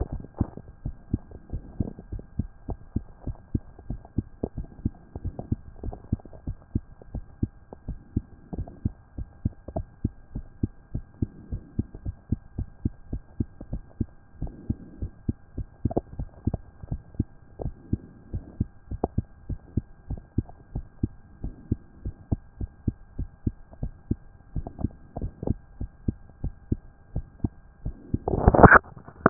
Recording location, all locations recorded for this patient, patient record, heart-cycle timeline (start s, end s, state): mitral valve (MV)
pulmonary valve (PV)+tricuspid valve (TV)+mitral valve (MV)
#Age: Child
#Sex: Female
#Height: 127.0 cm
#Weight: 24.5 kg
#Pregnancy status: False
#Murmur: Absent
#Murmur locations: nan
#Most audible location: nan
#Systolic murmur timing: nan
#Systolic murmur shape: nan
#Systolic murmur grading: nan
#Systolic murmur pitch: nan
#Systolic murmur quality: nan
#Diastolic murmur timing: nan
#Diastolic murmur shape: nan
#Diastolic murmur grading: nan
#Diastolic murmur pitch: nan
#Diastolic murmur quality: nan
#Outcome: Normal
#Campaign: 2014 screening campaign
0.00	0.69	unannotated
0.69	0.84	diastole
0.84	0.96	S1
0.96	1.12	systole
1.12	1.22	S2
1.22	1.52	diastole
1.52	1.62	S1
1.62	1.78	systole
1.78	1.88	S2
1.88	2.12	diastole
2.12	2.24	S1
2.24	2.38	systole
2.38	2.48	S2
2.48	2.68	diastole
2.68	2.78	S1
2.78	2.94	systole
2.94	3.04	S2
3.04	3.26	diastole
3.26	3.36	S1
3.36	3.52	systole
3.52	3.62	S2
3.62	3.88	diastole
3.88	4.00	S1
4.00	4.16	systole
4.16	4.26	S2
4.26	4.56	diastole
4.56	4.68	S1
4.68	4.84	systole
4.84	4.94	S2
4.94	5.22	diastole
5.22	5.34	S1
5.34	5.50	systole
5.50	5.58	S2
5.58	5.84	diastole
5.84	5.96	S1
5.96	6.10	systole
6.10	6.20	S2
6.20	6.46	diastole
6.46	6.58	S1
6.58	6.74	systole
6.74	6.82	S2
6.82	7.14	diastole
7.14	7.24	S1
7.24	7.42	systole
7.42	7.50	S2
7.50	7.86	diastole
7.86	7.98	S1
7.98	8.14	systole
8.14	8.24	S2
8.24	8.56	diastole
8.56	8.68	S1
8.68	8.84	systole
8.84	8.94	S2
8.94	9.18	diastole
9.18	9.28	S1
9.28	9.44	systole
9.44	9.52	S2
9.52	9.74	diastole
9.74	9.86	S1
9.86	10.02	systole
10.02	10.12	S2
10.12	10.34	diastole
10.34	10.46	S1
10.46	10.62	systole
10.62	10.70	S2
10.70	10.94	diastole
10.94	11.04	S1
11.04	11.20	systole
11.20	11.30	S2
11.30	11.50	diastole
11.50	11.62	S1
11.62	11.76	systole
11.76	11.86	S2
11.86	12.04	diastole
12.04	12.16	S1
12.16	12.30	systole
12.30	12.40	S2
12.40	12.58	diastole
12.58	12.68	S1
12.68	12.84	systole
12.84	12.92	S2
12.92	13.12	diastole
13.12	13.22	S1
13.22	13.38	systole
13.38	13.48	S2
13.48	13.72	diastole
13.72	13.82	S1
13.82	13.98	systole
13.98	14.08	S2
14.08	14.40	diastole
14.40	14.52	S1
14.52	14.68	systole
14.68	14.78	S2
14.78	15.02	diastole
15.02	15.12	S1
15.12	15.26	systole
15.26	15.36	S2
15.36	15.56	diastole
15.56	29.30	unannotated